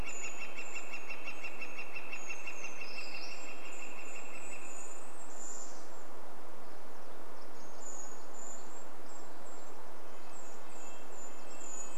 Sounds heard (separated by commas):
Golden-crowned Kinglet song, Brown Creeper call, Northern Flicker call, Golden-crowned Kinglet call, Red-breasted Nuthatch song, Brown Creeper song, MacGillivray's Warbler song